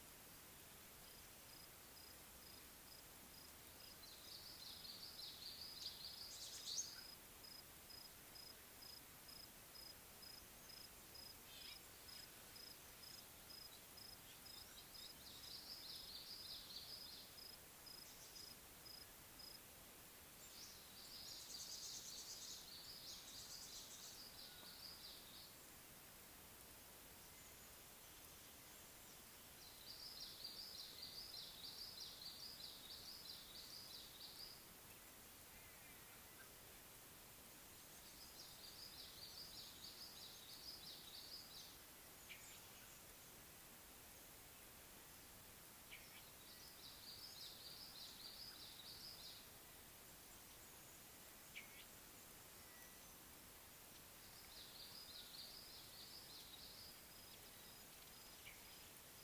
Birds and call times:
Red-faced Crombec (Sylvietta whytii): 0:05.5, 0:16.1, 0:22.0, 0:32.2, 0:40.2, 0:48.1, 0:55.4
Tawny-flanked Prinia (Prinia subflava): 0:21.8

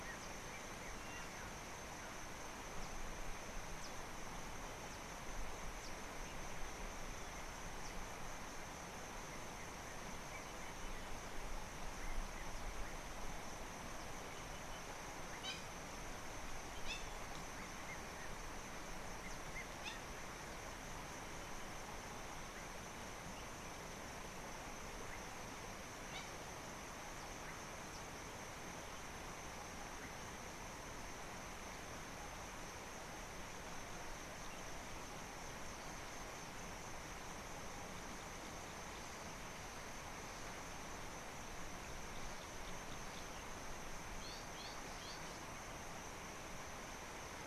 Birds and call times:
Hamerkop (Scopus umbretta): 0:15.5, 0:16.9, 0:26.1
Red-chested Cuckoo (Cuculus solitarius): 0:17.9
Gray-backed Camaroptera (Camaroptera brevicaudata): 0:44.6

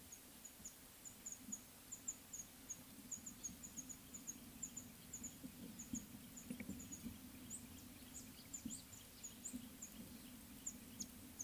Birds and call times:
Mouse-colored Penduline-Tit (Anthoscopus musculus): 0:01.3, 0:03.2, 0:06.0, 0:08.6

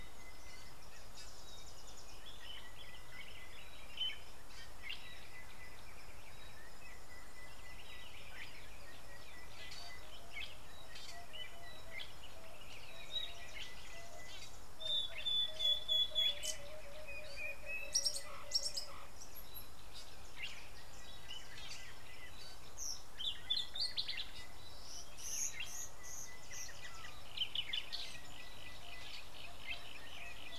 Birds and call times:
Sulphur-breasted Bushshrike (Telophorus sulfureopectus): 0:09.4, 0:28.6

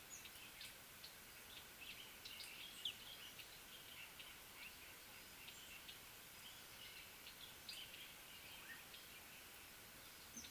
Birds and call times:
Scarlet-chested Sunbird (Chalcomitra senegalensis): 0:02.9

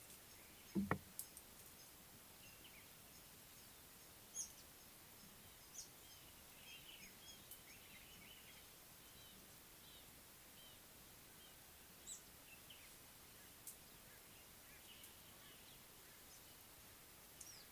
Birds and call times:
Speckled Mousebird (Colius striatus): 0:04.4, 0:12.1
Red-fronted Barbet (Tricholaema diademata): 0:09.3

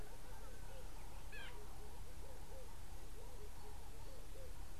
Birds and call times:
Gray-backed Camaroptera (Camaroptera brevicaudata): 0:01.4
Red-eyed Dove (Streptopelia semitorquata): 0:02.6

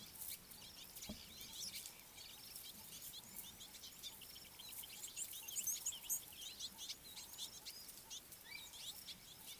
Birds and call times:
Red-cheeked Cordonbleu (Uraeginthus bengalus): 0:05.8
Red-billed Firefinch (Lagonosticta senegala): 0:07.5

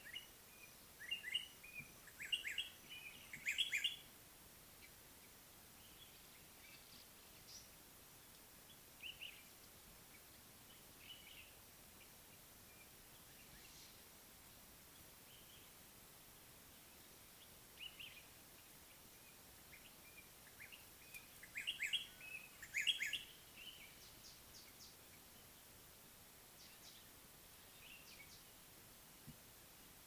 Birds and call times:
White-browed Robin-Chat (Cossypha heuglini): 0:02.2, 0:21.8
Common Bulbul (Pycnonotus barbatus): 0:09.0, 0:17.8

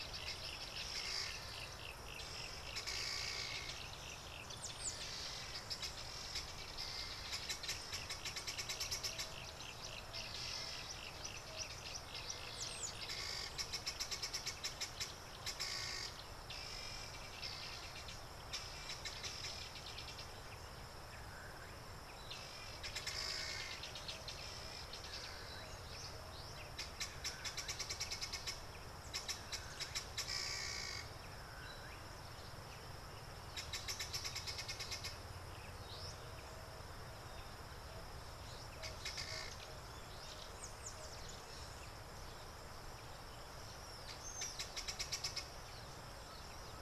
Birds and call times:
Helmeted Guineafowl (Numida meleagris): 0:08.4, 0:14.2, 0:15.7, 0:23.4, 0:34.4, 0:39.3, 0:44.9
Yellow-breasted Apalis (Apalis flavida): 0:09.6

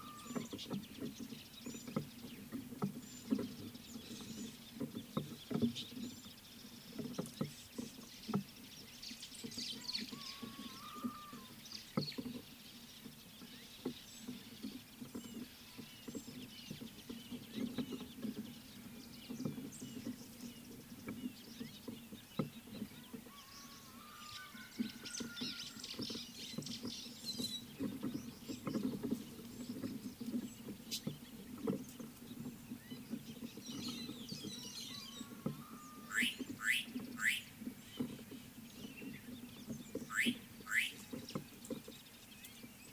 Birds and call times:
White-browed Sparrow-Weaver (Plocepasser mahali): 0:09.6, 0:25.5
Red-fronted Barbet (Tricholaema diademata): 0:16.6, 0:19.9
Scarlet-chested Sunbird (Chalcomitra senegalensis): 0:22.4
White-headed Buffalo-Weaver (Dinemellia dinemelli): 0:27.4, 0:34.6
Slate-colored Boubou (Laniarius funebris): 0:36.7, 0:40.3

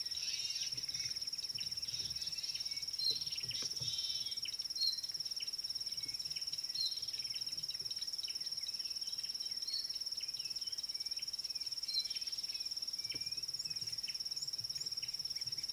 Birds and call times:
Klaas's Cuckoo (Chrysococcyx klaas): 0:13.1

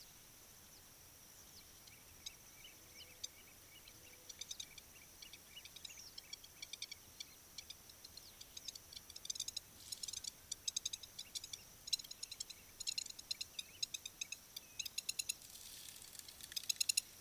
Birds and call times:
Blacksmith Lapwing (Vanellus armatus): 0:13.0

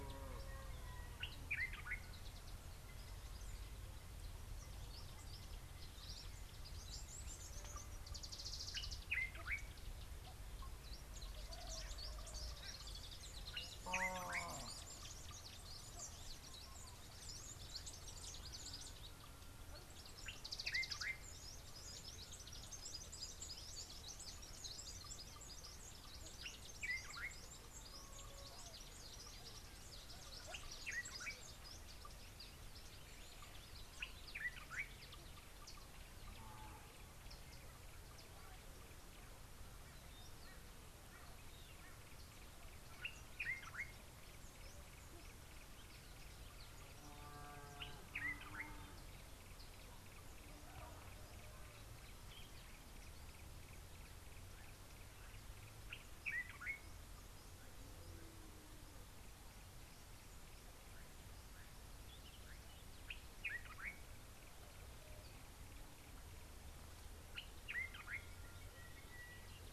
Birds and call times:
Common Bulbul (Pycnonotus barbatus): 0:01.7, 0:09.2, 0:20.8, 0:34.5, 0:43.6, 0:56.3, 1:03.5
Mariqua Sunbird (Cinnyris mariquensis): 0:08.6
Sulphur-breasted Bushshrike (Telophorus sulfureopectus): 1:08.7

